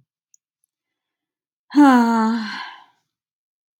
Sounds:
Sigh